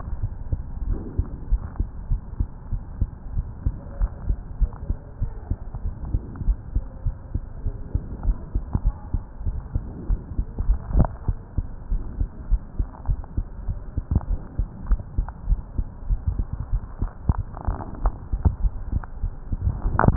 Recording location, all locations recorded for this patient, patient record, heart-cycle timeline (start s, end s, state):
aortic valve (AV)
aortic valve (AV)+pulmonary valve (PV)+tricuspid valve (TV)+mitral valve (MV)
#Age: Child
#Sex: Female
#Height: 126.0 cm
#Weight: 27.1 kg
#Pregnancy status: False
#Murmur: Absent
#Murmur locations: nan
#Most audible location: nan
#Systolic murmur timing: nan
#Systolic murmur shape: nan
#Systolic murmur grading: nan
#Systolic murmur pitch: nan
#Systolic murmur quality: nan
#Diastolic murmur timing: nan
#Diastolic murmur shape: nan
#Diastolic murmur grading: nan
#Diastolic murmur pitch: nan
#Diastolic murmur quality: nan
#Outcome: Normal
#Campaign: 2015 screening campaign
0.00	0.20	diastole
0.20	0.32	S1
0.32	0.50	systole
0.50	0.64	S2
0.64	0.86	diastole
0.86	1.00	S1
1.00	1.16	systole
1.16	1.30	S2
1.30	1.50	diastole
1.50	1.64	S1
1.64	1.78	systole
1.78	1.90	S2
1.90	2.08	diastole
2.08	2.20	S1
2.20	2.38	systole
2.38	2.50	S2
2.50	2.70	diastole
2.70	2.82	S1
2.82	2.98	systole
2.98	3.12	S2
3.12	3.32	diastole
3.32	3.46	S1
3.46	3.62	systole
3.62	3.74	S2
3.74	3.96	diastole
3.96	4.10	S1
4.10	4.26	systole
4.26	4.40	S2
4.40	4.60	diastole
4.60	4.70	S1
4.70	4.88	systole
4.88	4.98	S2
4.98	5.20	diastole
5.20	5.32	S1
5.32	5.48	systole
5.48	5.60	S2
5.60	5.82	diastole
5.82	5.94	S1
5.94	6.12	systole
6.12	6.22	S2
6.22	6.42	diastole
6.42	6.58	S1
6.58	6.74	systole
6.74	6.84	S2
6.84	7.04	diastole
7.04	7.16	S1
7.16	7.32	systole
7.32	7.42	S2
7.42	7.62	diastole
7.62	7.76	S1
7.76	7.92	systole
7.92	8.02	S2
8.02	8.24	diastole
8.24	8.36	S1
8.36	8.54	systole
8.54	8.64	S2
8.64	8.84	diastole
8.84	8.94	S1
8.94	9.12	systole
9.12	9.22	S2
9.22	9.44	diastole
9.44	9.56	S1
9.56	9.74	systole
9.74	9.86	S2
9.86	10.08	diastole
10.08	10.20	S1
10.20	10.36	systole
10.36	10.46	S2
10.46	10.64	diastole
10.64	10.78	S1
10.78	10.92	systole
10.92	11.08	S2
11.08	11.26	diastole
11.26	11.38	S1
11.38	11.56	systole
11.56	11.66	S2
11.66	11.90	diastole
11.90	12.02	S1
12.02	12.18	systole
12.18	12.28	S2
12.28	12.50	diastole
12.50	12.62	S1
12.62	12.78	systole
12.78	12.88	S2
12.88	13.08	diastole
13.08	13.20	S1
13.20	13.36	systole
13.36	13.46	S2
13.46	13.66	diastole
13.66	13.80	S1
13.80	13.96	systole
13.96	14.06	S2
14.06	14.28	diastole
14.28	14.38	S1
14.38	14.58	systole
14.58	14.68	S2
14.68	14.86	diastole
14.86	15.00	S1
15.00	15.16	systole
15.16	15.30	S2
15.30	15.46	diastole
15.46	15.62	S1
15.62	15.78	systole
15.78	15.86	S2
15.86	16.06	diastole
16.06	16.20	S1
16.20	16.36	systole
16.36	16.48	S2
16.48	16.70	diastole
16.70	16.82	S1
16.82	17.00	systole
17.00	17.10	S2
17.10	17.30	diastole
17.30	17.46	S1
17.46	17.66	systole
17.66	17.78	S2
17.78	18.00	diastole
18.00	18.14	S1
18.14	18.28	systole
18.28	18.40	S2
18.40	18.62	diastole
18.62	18.74	S1
18.74	18.92	systole
18.92	19.04	S2
19.04	19.22	diastole
19.22	19.32	S1
19.32	19.46	systole
19.46	19.62	S2